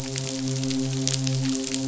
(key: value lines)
label: biophony, midshipman
recorder: SoundTrap 500